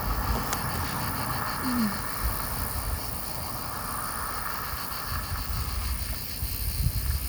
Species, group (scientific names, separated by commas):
Gampsocleis glabra, Orthoptera